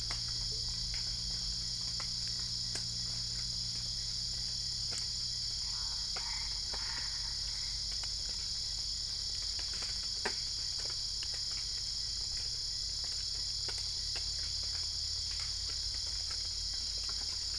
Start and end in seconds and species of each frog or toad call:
5.5	8.0	Boana albopunctata
Cerrado, 3:30am

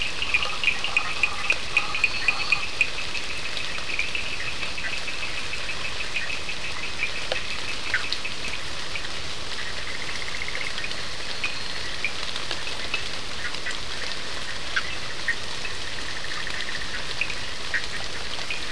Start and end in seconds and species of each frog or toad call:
0.0	3.2	Boana prasina
0.0	8.7	Sphaenorhynchus surdus
1.8	2.7	Elachistocleis bicolor
10.8	12.0	Elachistocleis bicolor
17.7	18.0	Boana bischoffi
Atlantic Forest, 2:00am

